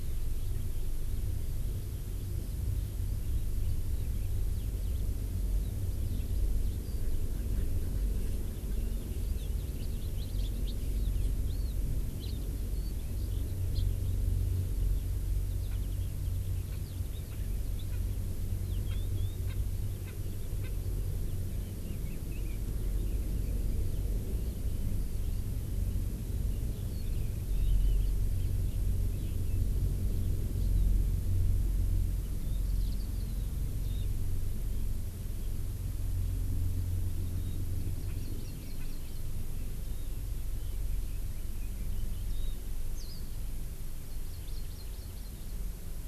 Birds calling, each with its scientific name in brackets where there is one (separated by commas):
Eurasian Skylark (Alauda arvensis), Warbling White-eye (Zosterops japonicus), Hawaii Amakihi (Chlorodrepanis virens), Red-billed Leiothrix (Leiothrix lutea), House Finch (Haemorhous mexicanus), Erckel's Francolin (Pternistis erckelii)